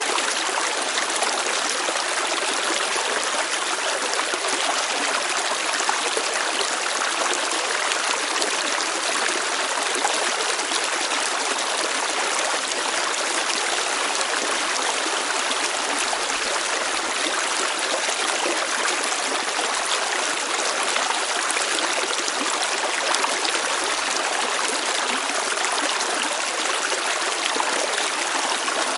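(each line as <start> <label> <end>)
0.0 A relaxing sound of water trickling. 29.0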